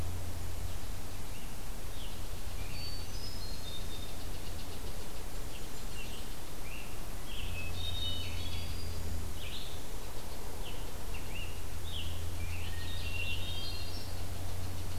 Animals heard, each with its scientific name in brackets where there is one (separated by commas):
Red-eyed Vireo (Vireo olivaceus), Hermit Thrush (Catharus guttatus), Scarlet Tanager (Piranga olivacea), unknown mammal